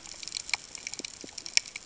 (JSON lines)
{"label": "ambient", "recorder": "HydroMoth"}